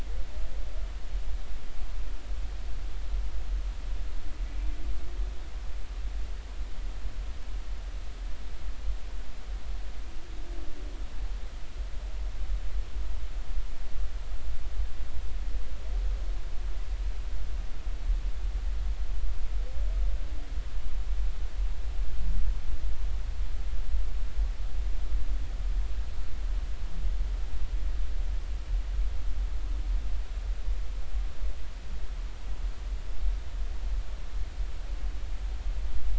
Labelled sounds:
4.5	4.7	humpback whale, 2.2 to 2.4 kHz

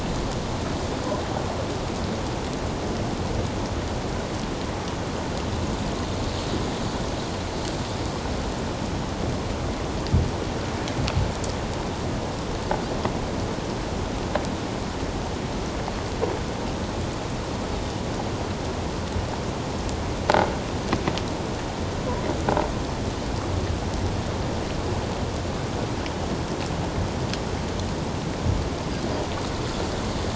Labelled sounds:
17.7	18.0	Pacific white-sided dolphin, 3.5 to 3.8 kHz

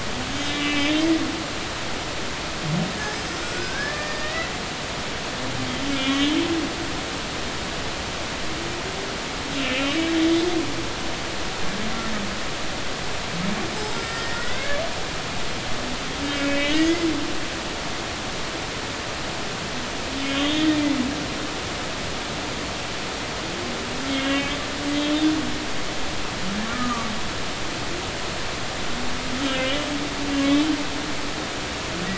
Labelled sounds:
0.5	1.0	humpback whale, 2.0 to 3.8 kHz
3.1	4.5	humpback whale, 1.4 to 5.1 kHz
5.9	6.3	humpback whale, 2.1 to 3.5 kHz
9.6	10.1	humpback whale, 2.6 to 3.0 kHz
13.8	14.8	humpback whale, 1.3 to 5.3 kHz
16.3	17.1	humpback whale, 1.8 to 2.7 kHz
20.2	20.7	humpback whale, 3.0 to 3.8 kHz
24.1	25.3	humpback whale, 1.6 to 3.7 kHz
26.6	27.1	humpback whale, 1.1 to 1.3 kHz
29.4	29.9	humpback whale, 2.8 to 3.8 kHz

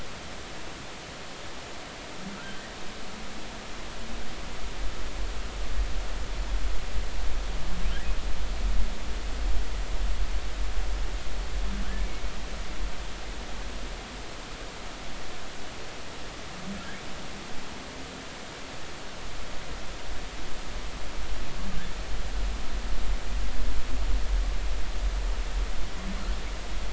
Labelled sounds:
11.8	12.1	humpback whale, 1.4 to 1.8 kHz

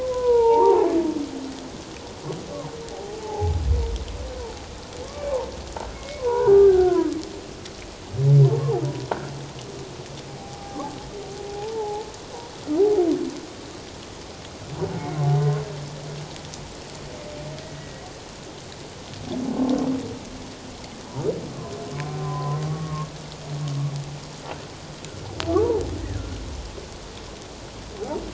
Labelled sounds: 0.0	0.9	humpback whale, 0.78 to 1.5 kHz
2.9	3.6	humpback whale, 0.78 to 0.91 kHz
5.1	5.4	humpback whale, 2.2 to 2.4 kHz
5.9	7.2	humpback whale, 0.88 to 2.3 kHz
10.3	12.1	humpback whale, 0.78 to 0.94 kHz
15.4	15.6	humpback whale, 1.0 to 1.1 kHz
17.8	18.0	humpback whale, 1.8 to 2.0 kHz
22.0	23.1	humpback whale, 0.78 to 1.2 kHz
25.6	25.8	humpback whale, 0.78 to 1.0 kHz

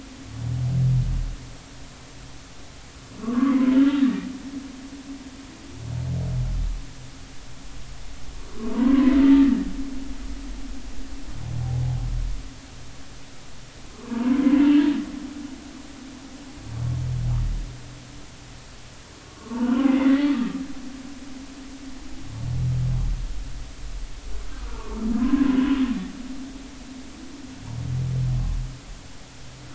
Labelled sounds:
3.1	3.6	humpback whale, 0.99 to 1.4 kHz
3.9	5.3	humpback whale, 1.7 to 3.8 kHz
8.6	9.1	humpback whale, 0.86 to 1.2 kHz
13.9	14.4	humpback whale, 0.86 to 1.3 kHz
19.3	20.4	humpback whale, 0.86 to 3.0 kHz
24.5	25.6	humpback whale, 0.96 to 1.4 kHz

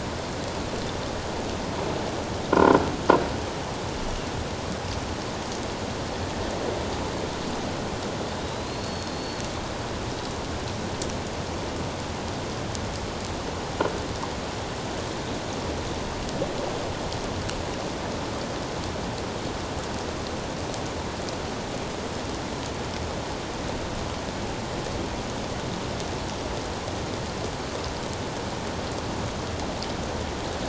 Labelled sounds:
2.5	2.8	croaking sound likely from a nearby submerged object, 0.91 to 1.1 kHz
8.4	9.4	killer whale, offshore, 3.8 to 4.5 kHz

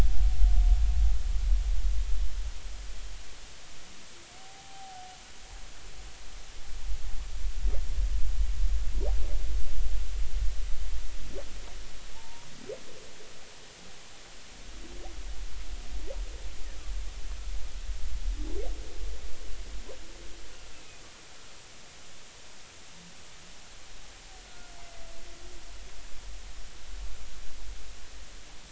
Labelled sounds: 4.4	5.0	humpback whale, 0.80 to 0.83 kHz
12.1	12.5	humpback whale, 0.83 to 0.99 kHz
20.7	21.0	humpback whale, 2.4 to 2.7 kHz
24.4	24.7	humpback whale, 1.4 to 1.5 kHz

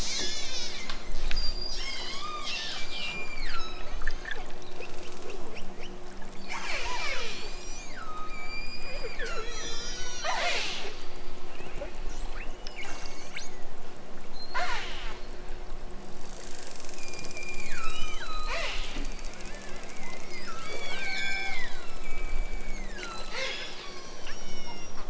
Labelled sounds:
0.1	4.4	killer whale, southern Alaska resident, 0.74 to 8.0 kHz
6.4	11.0	killer whale, southern Alaska resident, 0.09 to 8.0 kHz
12.1	13.6	killer whale, southern Alaska resident, 1.5 to 8.0 kHz
14.3	14.9	killer whale, southern Alaska resident, 0.28 to 8.0 kHz
16.9	18.9	killer whale, southern Alaska resident, 0.37 to 8.0 kHz
19.9	25.0	killer whale, southern Alaska resident, 0.32 to 8.0 kHz

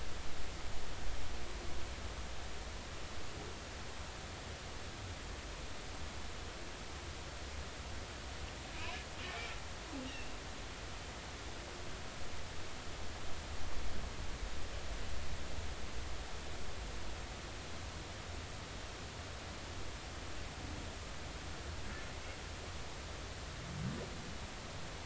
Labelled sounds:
8.8	9.1	humpback whale, 2.4 to 2.8 kHz
11.1	11.3	humpback whale, 2.5 to 2.9 kHz

